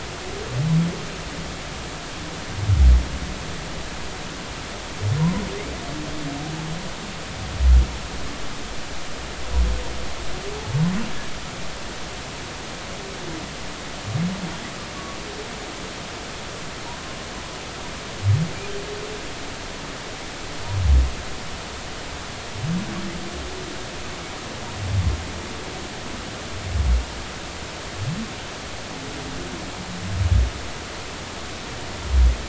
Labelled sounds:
5.2	5.4	humpback whale, 0.90 to 1.1 kHz

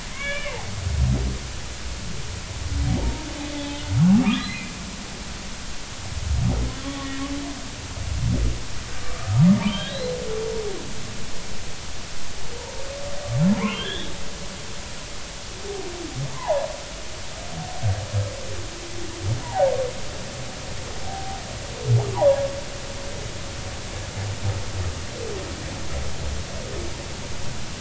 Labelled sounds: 0.1	0.6	humpback whale, 1.5 to 3.0 kHz
2.9	4.7	humpback whale, 0.80 to 2.8 kHz
6.8	7.1	humpback whale, 1.1 to 3.4 kHz
9.0	10.2	humpback whale, 1.1 to 4.2 kHz
12.6	12.9	humpback whale, 0.86 to 0.99 kHz
13.6	14.2	humpback whale, 1.5 to 3.8 kHz
16.3	16.6	humpback whale, 0.80 to 1.1 kHz
19.4	19.7	humpback whale, 0.80 to 1.0 kHz
21.1	21.4	humpback whale, 0.80 to 0.83 kHz

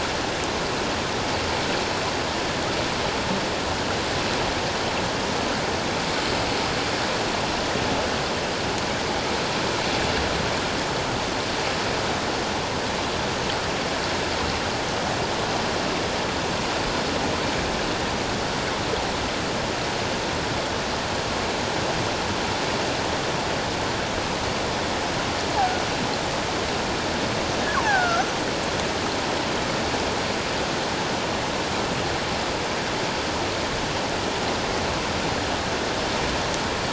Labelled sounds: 27.8	28.2	killer whale, offshore, 0.78 to 1.8 kHz

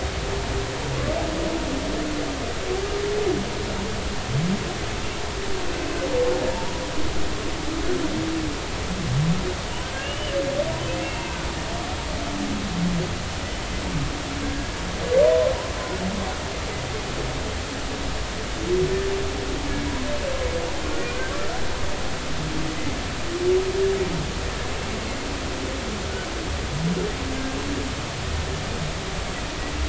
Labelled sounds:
10.0	10.4	humpback whale, 2.7 to 3.1 kHz
11.0	11.4	humpback whale, 2.5 to 2.8 kHz
14.4	14.8	humpback whale, 1.5 to 1.7 kHz
21.1	21.3	humpback whale, 1.4 to 1.6 kHz

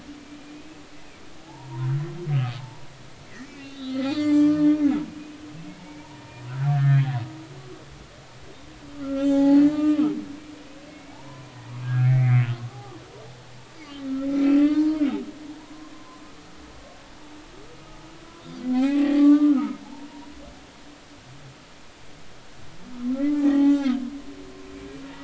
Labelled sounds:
0.5	0.8	humpback whale, 2.4 to 2.6 kHz
1.4	1.9	humpback whale, 0.80 to 1.1 kHz
2.6	2.9	humpback whale, 0.83 to 1.1 kHz
3.4	4.7	humpback whale, 1.1 to 7.8 kHz
5.4	6.3	humpback whale, 0.83 to 5.2 kHz
6.7	7.0	humpback whale, 1.4 to 1.9 kHz
8.9	10.1	humpback whale, 0.80 to 7.3 kHz
10.9	11.5	humpback whale, 0.80 to 2.3 kHz
11.8	12.9	humpback whale, 0.80 to 2.6 kHz
14.3	15.0	humpback whale, 0.90 to 2.8 kHz
15.6	16.2	humpback whale, 0.93 to 1.1 kHz
18.7	19.8	humpback whale, 0.80 to 2.8 kHz
23.2	24.0	humpback whale, 0.80 to 6.0 kHz

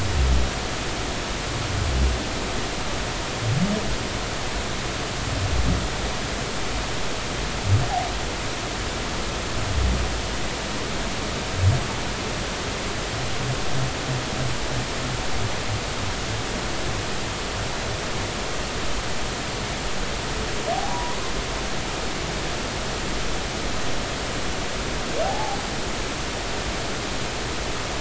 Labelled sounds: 20.9	21.2	humpback whale, 0.93 to 1.2 kHz
25.2	25.6	humpback whale, 0.80 to 0.93 kHz

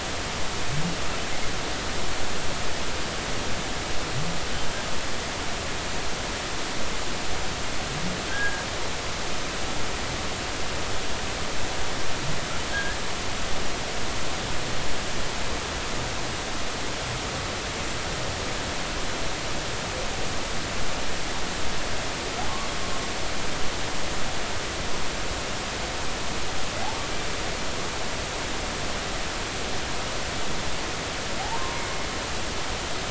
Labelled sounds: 8.3	8.6	humpback whale, 1.5 to 1.7 kHz
12.7	13.0	humpback whale, 1.5 to 1.8 kHz
31.4	31.7	humpback whale, 0.80 to 1.1 kHz

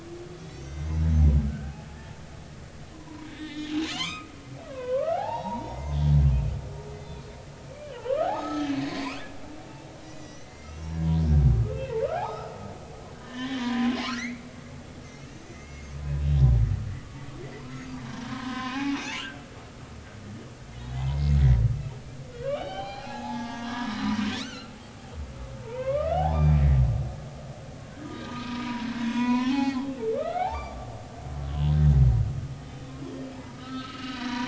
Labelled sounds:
0.3	2.1	humpback whale, 1.9 to 6.4 kHz
2.5	4.3	humpback whale, 0.93 to 4.0 kHz
4.7	5.9	humpback whale, 0.80 to 4.0 kHz
6.9	9.2	humpback whale, 0.80 to 6.6 kHz
10.0	11.2	humpback whale, 0.86 to 6.2 kHz
12.1	12.6	humpback whale, 0.80 to 5.1 kHz
13.1	14.5	humpback whale, 0.90 to 6.6 kHz
15.4	16.5	humpback whale, 2.0 to 4.9 kHz
18.3	19.4	humpback whale, 0.80 to 3.3 kHz
20.9	21.4	humpback whale, 1.9 to 2.2 kHz
22.3	24.0	humpback whale, 0.80 to 5.2 kHz
24.3	24.8	humpback whale, 1.3 to 4.6 kHz
25.6	26.6	humpback whale, 0.80 to 4.9 kHz
28.0	30.9	humpback whale, 0.80 to 4.7 kHz
33.6	34.4	humpback whale, 0.90 to 4.5 kHz

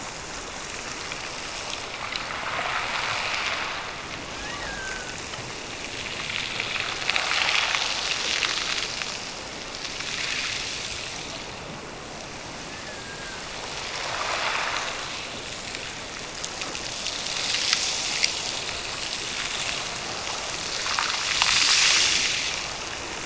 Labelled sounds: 4.4	5.2	killer whale, Bigg's (transient), Gulf of Alaska transient, 1.4 to 3.1 kHz
12.7	13.5	killer whale, Bigg's (transient), Gulf of Alaska transient, 1.3 to 1.9 kHz

